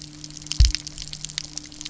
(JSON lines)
{"label": "anthrophony, boat engine", "recorder": "SoundTrap 300"}